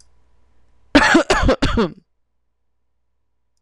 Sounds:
Cough